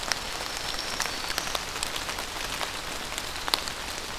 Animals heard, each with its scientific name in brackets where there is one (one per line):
Black-throated Green Warbler (Setophaga virens)